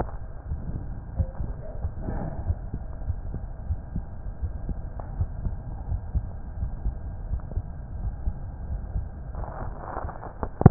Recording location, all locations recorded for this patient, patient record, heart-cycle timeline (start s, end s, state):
aortic valve (AV)
aortic valve (AV)+pulmonary valve (PV)+tricuspid valve (TV)+mitral valve (MV)
#Age: Child
#Sex: Male
#Height: 155.0 cm
#Weight: 46.8 kg
#Pregnancy status: False
#Murmur: Absent
#Murmur locations: nan
#Most audible location: nan
#Systolic murmur timing: nan
#Systolic murmur shape: nan
#Systolic murmur grading: nan
#Systolic murmur pitch: nan
#Systolic murmur quality: nan
#Diastolic murmur timing: nan
#Diastolic murmur shape: nan
#Diastolic murmur grading: nan
#Diastolic murmur pitch: nan
#Diastolic murmur quality: nan
#Outcome: Normal
#Campaign: 2015 screening campaign
0.00	2.24	unannotated
2.24	2.46	diastole
2.46	2.56	S1
2.56	2.71	systole
2.71	2.80	S2
2.80	3.06	diastole
3.06	3.18	S1
3.18	3.28	systole
3.28	3.40	S2
3.40	3.66	diastole
3.66	3.80	S1
3.80	3.92	systole
3.92	4.04	S2
4.04	4.40	diastole
4.40	4.54	S1
4.54	4.64	systole
4.64	4.78	S2
4.78	5.16	diastole
5.16	5.30	S1
5.30	5.42	systole
5.42	5.56	S2
5.56	5.88	diastole
5.88	6.02	S1
6.02	6.10	systole
6.10	6.26	S2
6.26	6.58	diastole
6.58	6.72	S1
6.72	6.82	systole
6.82	6.94	S2
6.94	7.26	diastole
7.26	7.42	S1
7.42	7.52	systole
7.52	7.66	S2
7.66	7.98	diastole
7.98	8.14	S1
8.14	8.24	systole
8.24	8.40	S2
8.40	8.67	diastole
8.67	8.82	S1
8.82	8.90	systole
8.90	9.06	S2
9.06	9.38	diastole
9.38	9.50	S1
9.50	10.70	unannotated